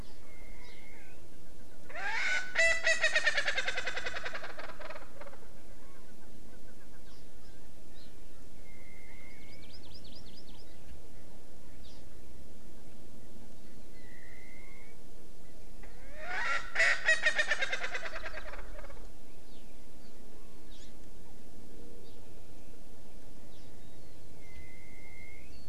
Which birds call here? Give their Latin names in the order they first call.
Garrulax canorus, Pternistis erckelii, Chlorodrepanis virens